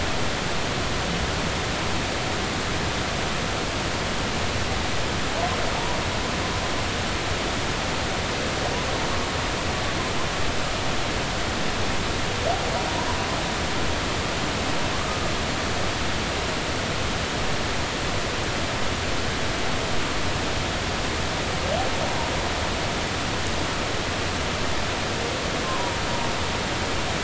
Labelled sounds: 14.9	15.2	humpback whale, 1.0 to 1.3 kHz
25.6	26.0	humpback whale, 0.90 to 1.2 kHz

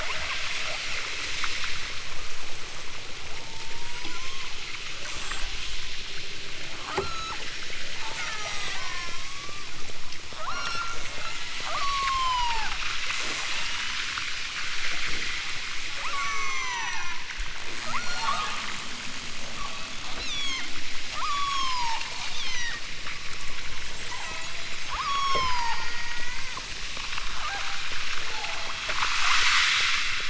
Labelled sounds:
0.0	0.8	killer whale, southern Alaska resident, 0.43 to 3.9 kHz
3.3	4.5	killer whale, southern Alaska resident, 0.60 to 8.0 kHz
5.0	5.7	killer whale, southern Alaska resident, 5.5 to 8.0 kHz
6.9	7.4	killer whale, southern Alaska resident, 0.46 to 8.0 kHz
8.0	9.8	killer whale, southern Alaska resident, 0.37 to 4.2 kHz
10.5	12.8	killer whale, southern Alaska resident, 0.50 to 8.0 kHz
13.5	14.4	killer whale, southern Alaska resident, 5.0 to 8.0 kHz
16.1	17.3	killer whale, southern Alaska resident, 0.50 to 7.2 kHz
17.9	18.8	killer whale, southern Alaska resident, 0.23 to 6.1 kHz
19.5	20.7	killer whale, southern Alaska resident, 0.64 to 8.0 kHz
21.1	22.0	killer whale, southern Alaska resident, 0.37 to 8.0 kHz
22.3	22.9	killer whale, southern Alaska resident, 0.60 to 6.6 kHz
24.1	26.5	killer whale, southern Alaska resident, 0.28 to 8.0 kHz
27.4	27.8	killer whale, southern Alaska resident, 0.50 to 2.5 kHz
28.3	28.8	killer whale, southern Alaska resident, 0.46 to 2.2 kHz

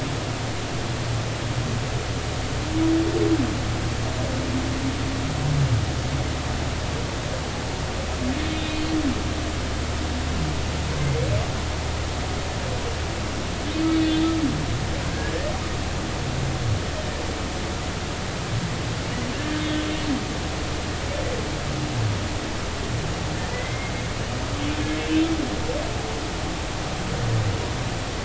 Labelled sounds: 11.0	11.3	humpback whale, 2.0 to 2.3 kHz
13.9	14.3	humpback whale, 3.4 to 3.6 kHz
19.3	19.6	humpback whale, 1.6 to 1.9 kHz
23.5	23.9	humpback whale, 1.9 to 2.2 kHz

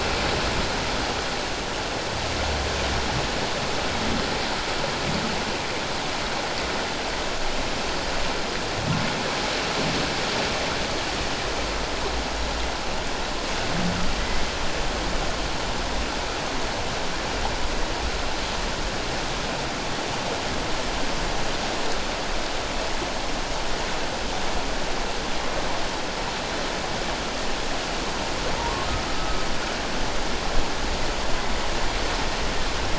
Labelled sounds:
28.6	29.5	humpback whale, 0.88 to 1.3 kHz

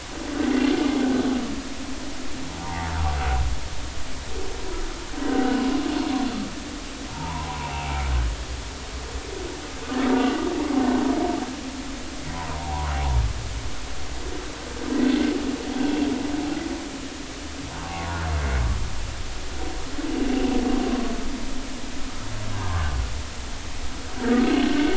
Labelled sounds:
2.6	2.9	humpback whale, 0.80 to 1.1 kHz
5.2	5.6	humpback whale, 1.4 to 1.6 kHz
7.1	7.5	humpback whale, 0.83 to 1.1 kHz
12.6	12.9	humpback whale, 0.80 to 1.1 kHz
15.8	16.1	humpback whale, 2.6 to 2.8 kHz
17.7	18.1	humpback whale, 0.80 to 1.2 kHz
20.9	21.1	humpback whale, 1.0 to 1.2 kHz
22.5	22.9	humpback whale, 0.83 to 1.3 kHz
24.2	24.4	humpback whale, 1.3 to 1.7 kHz

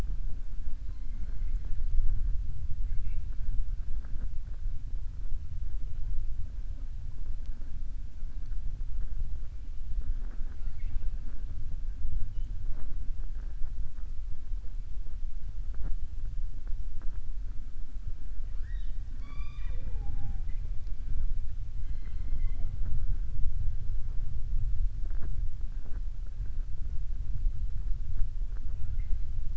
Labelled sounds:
19.1	20.6	killer whale, southern resident, 0.22 to 5.7 kHz

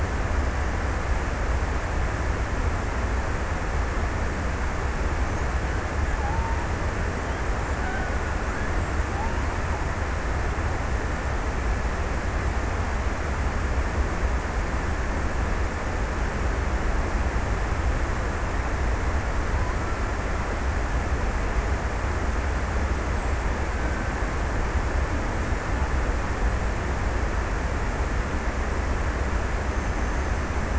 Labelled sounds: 7.2	9.3	killer whale, Bigg's (transient), 0.48 to 1.7 kHz

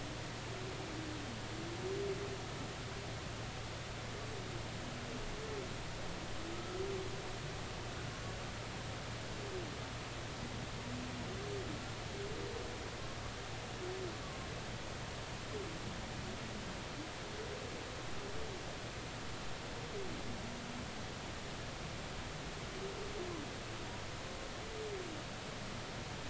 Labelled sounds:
6.5	6.8	humpback whale, 1.2 to 1.4 kHz

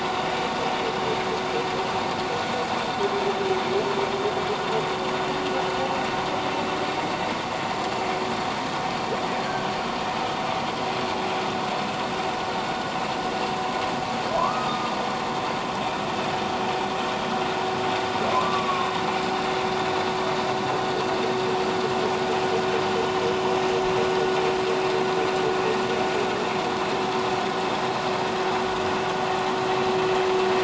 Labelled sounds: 9.4	9.7	humpback whale, 1.5 to 1.7 kHz
14.4	14.9	humpback whale, 0.94 to 1.3 kHz
18.3	18.9	humpback whale, 0.94 to 1.2 kHz

